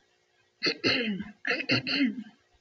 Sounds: Throat clearing